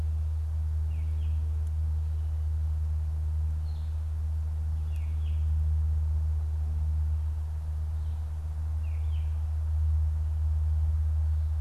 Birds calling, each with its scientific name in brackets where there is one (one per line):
unidentified bird